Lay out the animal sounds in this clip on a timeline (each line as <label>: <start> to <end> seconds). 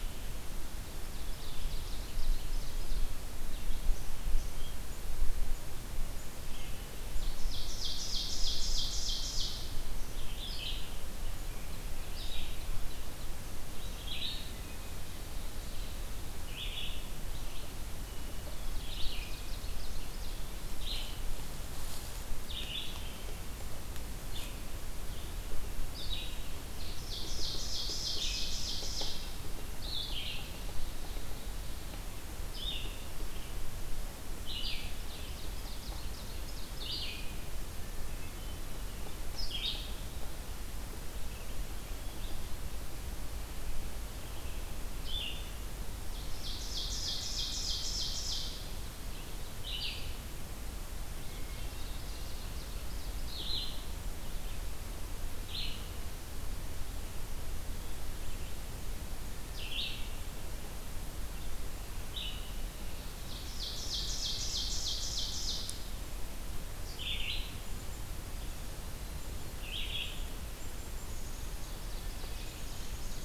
Ovenbird (Seiurus aurocapilla): 0.9 to 3.5 seconds
Red-eyed Vireo (Vireo olivaceus): 6.2 to 56.0 seconds
Ovenbird (Seiurus aurocapilla): 7.1 to 9.9 seconds
Ovenbird (Seiurus aurocapilla): 18.6 to 20.6 seconds
Ovenbird (Seiurus aurocapilla): 26.6 to 29.4 seconds
Ovenbird (Seiurus aurocapilla): 34.7 to 37.2 seconds
Ovenbird (Seiurus aurocapilla): 45.8 to 48.6 seconds
Hermit Thrush (Catharus guttatus): 51.1 to 52.4 seconds
Ovenbird (Seiurus aurocapilla): 51.2 to 53.5 seconds
Red-eyed Vireo (Vireo olivaceus): 59.2 to 73.2 seconds
Ovenbird (Seiurus aurocapilla): 63.2 to 65.9 seconds
Black-capped Chickadee (Poecile atricapillus): 69.1 to 71.4 seconds
Ovenbird (Seiurus aurocapilla): 71.5 to 73.2 seconds
Black-capped Chickadee (Poecile atricapillus): 72.4 to 73.2 seconds